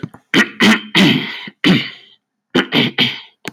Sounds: Throat clearing